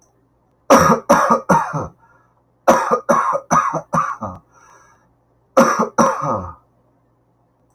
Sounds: Cough